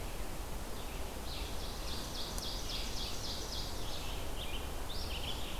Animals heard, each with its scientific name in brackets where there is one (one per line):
Red-eyed Vireo (Vireo olivaceus)
Ovenbird (Seiurus aurocapilla)